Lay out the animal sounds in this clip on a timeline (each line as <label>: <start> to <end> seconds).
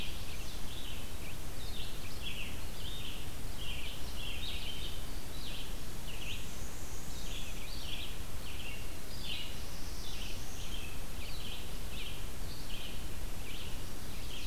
Chestnut-sided Warbler (Setophaga pensylvanica): 0.0 to 0.7 seconds
Red-eyed Vireo (Vireo olivaceus): 0.0 to 14.5 seconds
Black-and-white Warbler (Mniotilta varia): 6.1 to 7.7 seconds
Black-throated Blue Warbler (Setophaga caerulescens): 9.0 to 10.7 seconds
Chestnut-sided Warbler (Setophaga pensylvanica): 13.7 to 14.5 seconds